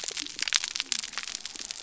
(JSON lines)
{"label": "biophony", "recorder": "SoundTrap 300"}